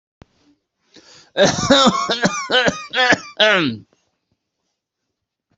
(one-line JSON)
{"expert_labels": [{"quality": "good", "cough_type": "dry", "dyspnea": false, "wheezing": true, "stridor": false, "choking": false, "congestion": false, "nothing": false, "diagnosis": "obstructive lung disease", "severity": "mild"}], "age": 43, "gender": "male", "respiratory_condition": true, "fever_muscle_pain": true, "status": "COVID-19"}